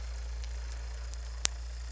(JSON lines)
{"label": "anthrophony, boat engine", "recorder": "SoundTrap 300"}